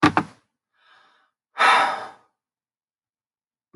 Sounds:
Sigh